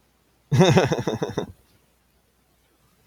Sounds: Laughter